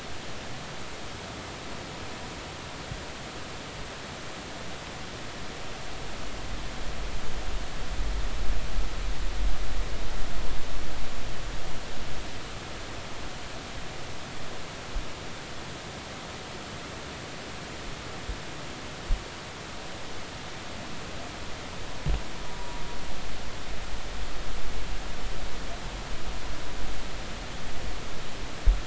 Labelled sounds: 22.5	22.8	humpback whale, 0.93 to 0.99 kHz

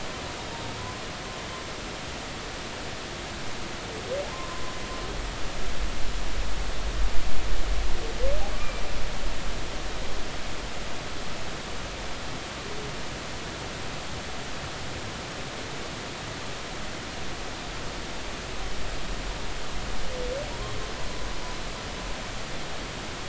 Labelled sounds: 4.3	4.7	humpback whale, 0.93 to 1.1 kHz
8.6	8.8	humpback whale, 2.3 to 2.5 kHz

